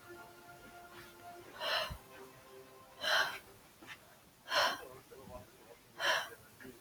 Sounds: Sigh